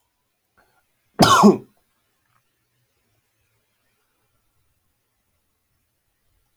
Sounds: Cough